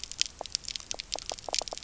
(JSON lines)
{"label": "biophony, pulse", "recorder": "SoundTrap 300"}